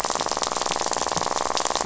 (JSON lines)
{"label": "biophony, rattle", "recorder": "SoundTrap 500"}